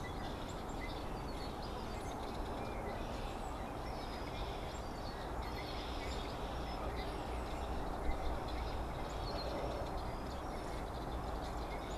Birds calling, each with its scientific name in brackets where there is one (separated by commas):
Red-winged Blackbird (Agelaius phoeniceus), unidentified bird